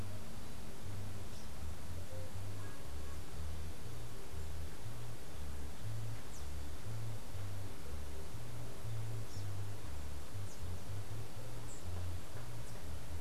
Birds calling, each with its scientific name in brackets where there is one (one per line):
unidentified bird